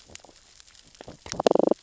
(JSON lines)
{"label": "biophony, damselfish", "recorder": "SoundTrap 600 or HydroMoth"}